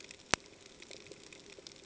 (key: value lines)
label: ambient
recorder: HydroMoth